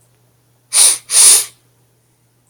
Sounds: Sniff